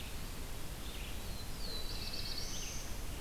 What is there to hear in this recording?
Red-eyed Vireo, Black-throated Blue Warbler, Wood Thrush